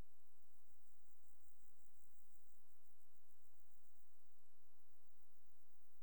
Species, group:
Pseudochorthippus parallelus
Orthoptera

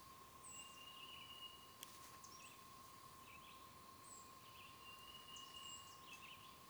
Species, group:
Magicicada tredecim
Cicadidae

